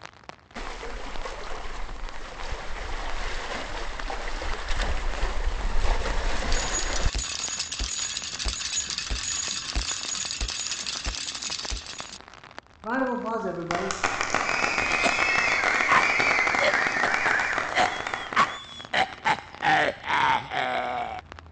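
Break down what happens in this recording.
- 0.6 s: the sound of waves
- 6.5 s: you can hear a bicycle
- 12.8 s: there is applause
- 14.8 s: someone coughs
- an even background noise lies about 20 dB below the sounds

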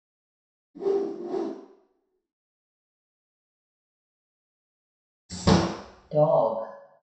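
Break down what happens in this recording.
- 0.7 s: a whoosh is audible
- 5.3 s: a glass window closes
- 6.1 s: someone says "dog"

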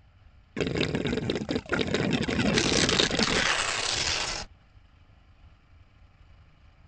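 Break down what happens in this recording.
- 0.6 s: water gurgles
- 2.5 s: the sound of tearing
- an even, faint background noise persists, about 35 decibels below the sounds

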